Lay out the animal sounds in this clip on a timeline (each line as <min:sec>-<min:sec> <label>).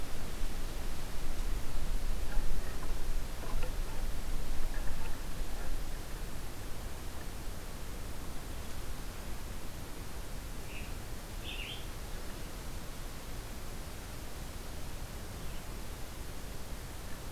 0:10.5-0:11.9 Red-eyed Vireo (Vireo olivaceus)